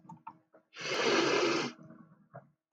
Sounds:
Sniff